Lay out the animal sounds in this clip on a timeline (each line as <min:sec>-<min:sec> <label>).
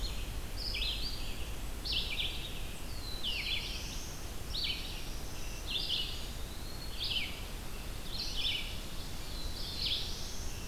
0:00.0-0:10.7 Red-eyed Vireo (Vireo olivaceus)
0:02.7-0:04.4 Black-throated Blue Warbler (Setophaga caerulescens)
0:04.6-0:06.5 Black-throated Green Warbler (Setophaga virens)
0:05.5-0:07.1 Eastern Wood-Pewee (Contopus virens)
0:09.0-0:10.7 Black-throated Blue Warbler (Setophaga caerulescens)